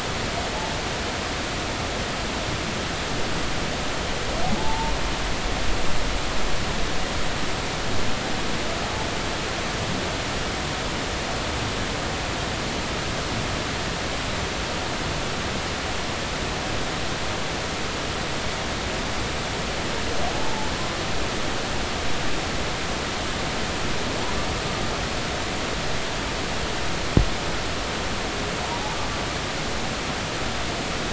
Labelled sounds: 4.6	4.9	humpback whale, 0.83 to 0.96 kHz
20.3	20.7	humpback whale, 0.80 to 0.96 kHz

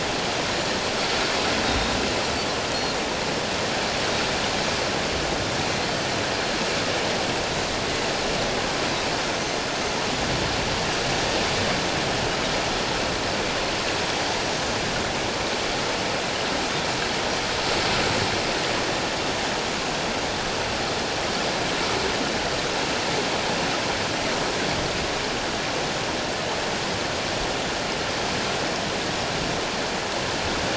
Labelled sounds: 1.6	2.0	Pacific white-sided dolphin, 3.6 to 3.8 kHz

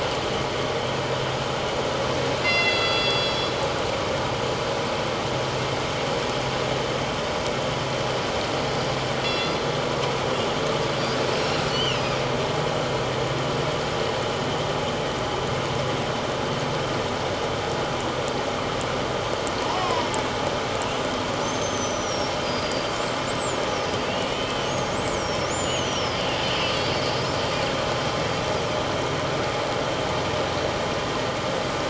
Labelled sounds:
2.4	3.5	killer whale, northern resident, G clan, 1.3 to 5.6 kHz
9.2	9.6	killer whale, northern resident, G clan, 2.7 to 5.0 kHz
11.7	12.2	killer whale, northern resident, 2.6 to 5.4 kHz
19.7	20.1	killer whale, northern resident, 0.81 to 1.2 kHz
21.4	23.0	killer whale, northern resident, 4.6 to 6.4 kHz
23.3	26.3	killer whale, northern resident, 2.4 to 8.0 kHz

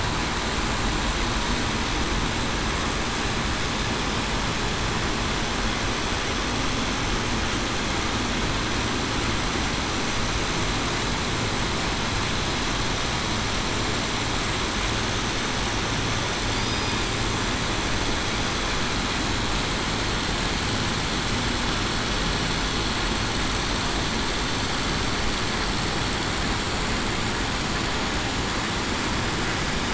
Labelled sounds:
16.5	17.0	killer whale, southern resident, 4.6 to 5.0 kHz

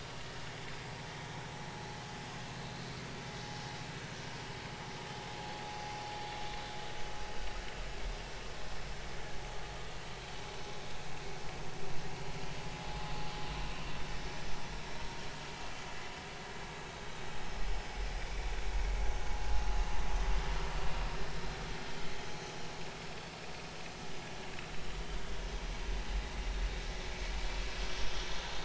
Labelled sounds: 19.3	19.6	vessel noise, 2.7 to 2.8 kHz
22.3	23.4	vessel noise, 3.3 to 4.6 kHz

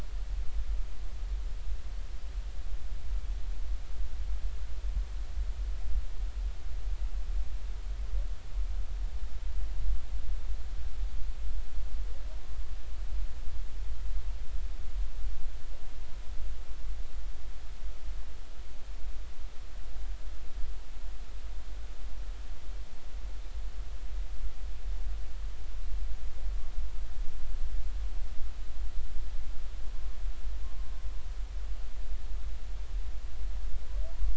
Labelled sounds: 30.6	30.9	humpback whale, 1.0 to 1.2 kHz

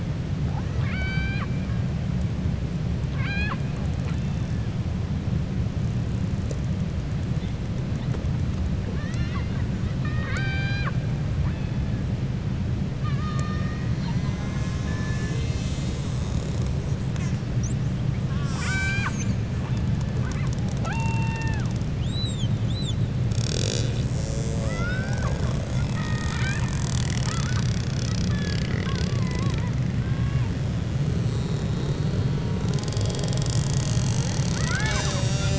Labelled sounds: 0.4	1.5	killer whale, 0.70 to 4.8 kHz
9.9	11.0	killer whale, 0.62 to 6.4 kHz
12.9	13.9	killer whale, 1.1 to 5.6 kHz
18.2	19.4	killer whale, 0.94 to 7.8 kHz
20.7	21.7	killer whale, 0.65 to 3.6 kHz
24.5	26.8	killer whale, 0.45 to 4.5 kHz

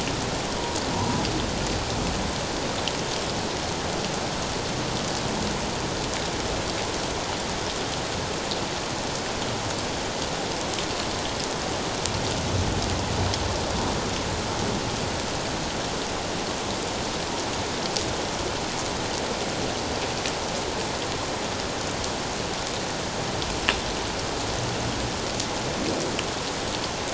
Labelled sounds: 0.9	1.2	humpback whale, 0.84 to 1.1 kHz

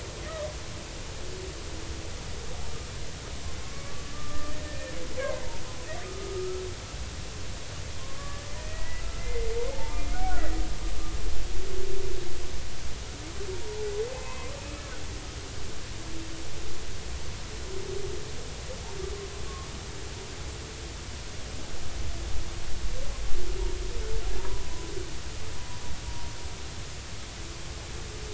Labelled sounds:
3.6	5.0	humpback whale, 1.0 to 1.9 kHz
7.0	10.0	humpback whale, 0.80 to 2.1 kHz
13.6	14.8	humpback whale, 0.83 to 2.7 kHz
24.4	24.7	humpback whale, 0.83 to 1.0 kHz

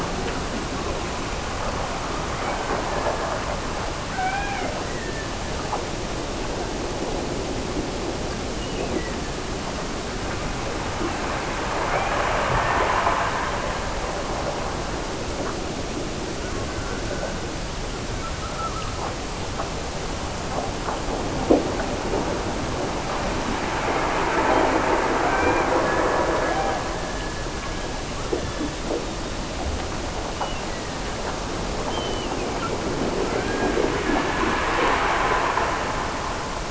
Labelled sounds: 2.3	3.3	killer whale, Bigg's (transient), Gulf of Alaska transient, 1.2 to 3.1 kHz
4.1	6.0	killer whale, Bigg's (transient), Gulf of Alaska transient, 0.63 to 3.4 kHz
8.5	9.7	killer whale, Bigg's (transient), Gulf of Alaska transient, 1.5 to 2.9 kHz
11.7	13.4	killer whale, Bigg's (transient), Gulf of Alaska transient, 1.5 to 2.6 kHz
25.2	28.2	killer whale, Bigg's (transient), Gulf of Alaska transient, 1.2 to 2.5 kHz
30.4	31.4	killer whale, Bigg's (transient), Gulf of Alaska transient, 1.5 to 3.0 kHz
31.9	32.9	killer whale, Bigg's (transient), Gulf of Alaska transient, 1.7 to 3.2 kHz
33.2	34.9	killer whale, Bigg's (transient), Gulf of Alaska transient, 1.2 to 2.5 kHz

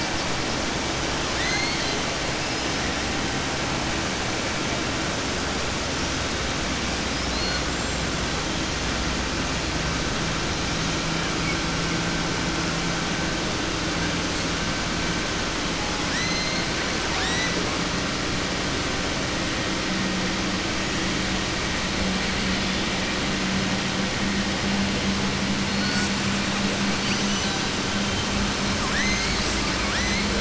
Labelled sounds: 28.7	29.6	killer whale, southern resident, 1.1 to 7.9 kHz

